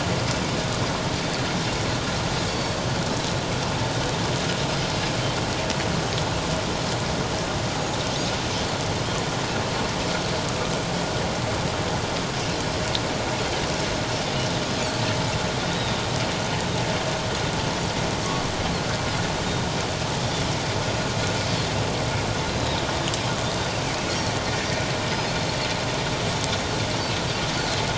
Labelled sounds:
2.5	2.8	Pacific white-sided dolphin, 4.3 to 4.7 kHz
15.7	16.0	Pacific white-sided dolphin, 3.6 to 3.9 kHz
19.5	19.7	Pacific white-sided dolphin, 3.6 to 3.8 kHz
22.4	22.8	Pacific white-sided dolphin, 3.6 to 4.1 kHz

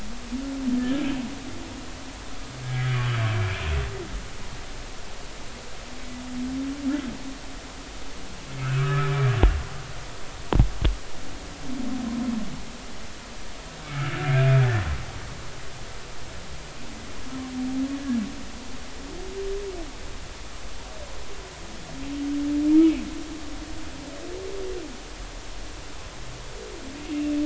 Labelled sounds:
0.8	1.0	humpback whale, 1.6 to 1.8 kHz
2.6	2.9	humpback whale, 1.6 to 1.7 kHz
8.6	9.1	humpback whale, 1.1 to 1.8 kHz
13.9	14.3	humpback whale, 1.2 to 1.8 kHz
27.0	27.3	humpback whale, 2.6 to 2.9 kHz

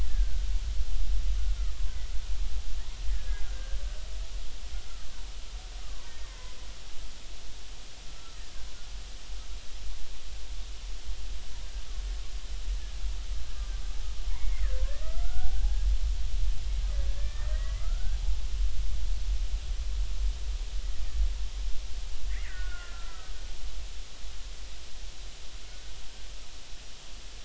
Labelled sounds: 0.1	0.4	killer whale, Bigg's (transient), 1.5 to 1.8 kHz
3.1	3.8	killer whale, Bigg's (transient), 1.5 to 2.1 kHz
5.8	6.6	killer whale, Bigg's (transient), 0.90 to 2.1 kHz
8.2	8.4	killer whale, Bigg's (transient), 1.2 to 1.4 kHz
14.3	15.5	killer whale, Bigg's (transient), 1.2 to 2.3 kHz
17.1	18.2	killer whale, Bigg's (transient), 1.2 to 2.1 kHz
22.3	23.3	killer whale, Bigg's (transient), 1.2 to 2.4 kHz
25.7	25.9	killer whale, Bigg's (transient), 1.4 to 1.6 kHz

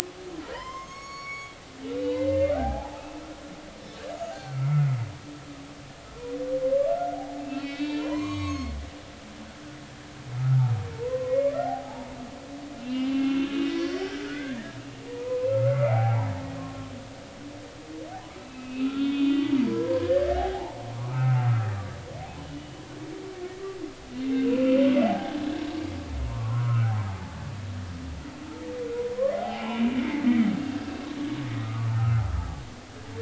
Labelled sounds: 0.4	1.6	humpback whale, 0.90 to 6.8 kHz
2.0	3.2	humpback whale, 0.80 to 2.8 kHz
4.3	5.0	humpback whale, 1.2 to 4.4 kHz
6.9	8.7	humpback whale, 0.86 to 6.7 kHz
10.4	12.2	humpback whale, 0.80 to 2.3 kHz
12.8	14.7	humpback whale, 1.4 to 4.6 kHz
15.1	16.9	humpback whale, 0.80 to 2.1 kHz
18.4	20.8	humpback whale, 0.80 to 3.7 kHz
21.1	21.5	humpback whale, 1.2 to 1.6 kHz
22.5	22.8	humpback whale, 2.9 to 3.0 kHz
24.3	24.8	humpback whale, 1.3 to 2.8 kHz
25.1	25.4	humpback whale, 0.80 to 0.90 kHz
26.3	27.3	humpback whale, 0.80 to 1.6 kHz
29.1	30.2	humpback whale, 0.80 to 3.2 kHz
31.6	32.2	humpback whale, 1.1 to 1.5 kHz

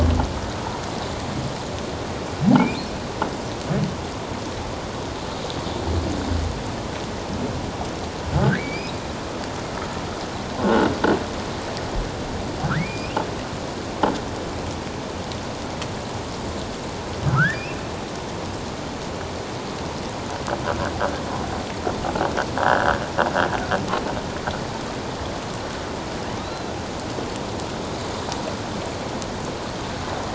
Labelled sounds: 2.6	2.8	humpback whale, 2.1 to 2.6 kHz
8.6	9.0	humpback whale, 2.1 to 2.7 kHz
10.6	10.9	humpback whale, 1.3 to 1.6 kHz
12.6	13.2	humpback whale, 1.2 to 5.3 kHz
17.3	17.9	humpback whale, 1.2 to 2.8 kHz
26.4	26.7	humpback whale, 3.6 to 4.2 kHz

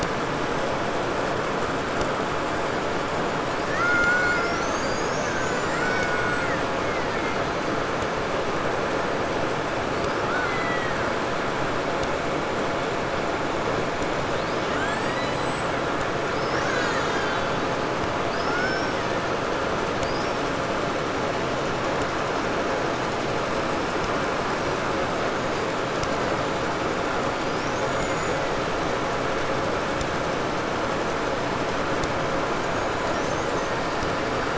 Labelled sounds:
3.5	5.0	killer whale, 0.94 to 7.7 kHz
5.0	7.8	killer whale, Bigg's (transient), 0.87 to 8.0 kHz
9.8	11.2	killer whale, Bigg's (transient), 0.74 to 5.7 kHz
14.3	15.8	killer whale, Bigg's (transient), 1.1 to 8.0 kHz
16.2	19.6	killer whale, Bigg's (transient), 0.65 to 7.8 kHz
19.9	20.7	killer whale, 0.98 to 5.8 kHz
27.2	28.5	killer whale, 0.94 to 7.2 kHz
32.7	34.5	killer whale, 1.0 to 7.4 kHz

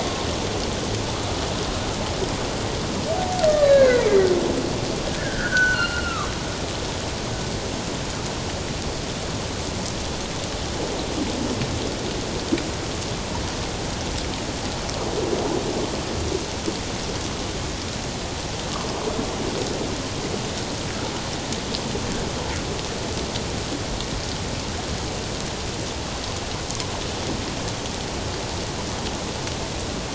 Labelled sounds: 3.7	4.1	humpback whale, 1.4 to 2.3 kHz
5.1	6.3	humpback whale, 1.0 to 4.3 kHz

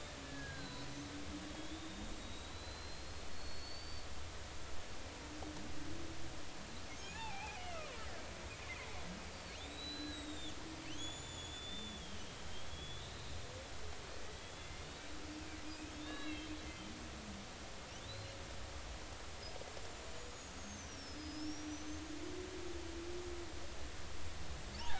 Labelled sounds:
0.2	0.9	killer whale, Bigg's (transient), 1.5 to 4.2 kHz
1.5	4.1	killer whale, Bigg's (transient), 3.3 to 4.7 kHz
7.0	7.9	killer whale, Bigg's (transient), 0.80 to 7.2 kHz
8.6	8.9	killer whale, Bigg's (transient), 2.0 to 2.2 kHz
9.6	13.4	killer whale, Bigg's (transient), 1.5 to 8.0 kHz
14.3	14.9	killer whale, Bigg's (transient), 2.0 to 3.5 kHz
15.3	16.5	killer whale, Bigg's (transient), 1.6 to 4.0 kHz
18.1	18.3	killer whale, Bigg's (transient), 3.7 to 4.3 kHz
19.9	22.1	killer whale, Bigg's (transient), 5.0 to 7.2 kHz

